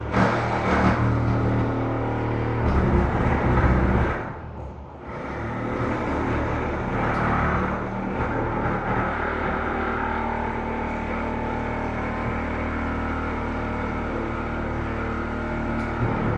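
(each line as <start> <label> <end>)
0.0 Drilling noise at a construction site. 16.4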